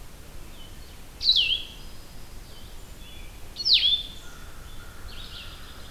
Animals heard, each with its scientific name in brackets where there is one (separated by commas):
American Crow (Corvus brachyrhynchos), Song Sparrow (Melospiza melodia), Blue-headed Vireo (Vireo solitarius)